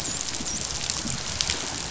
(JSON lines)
{"label": "biophony, dolphin", "recorder": "SoundTrap 500"}